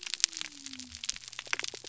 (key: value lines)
label: biophony
recorder: SoundTrap 300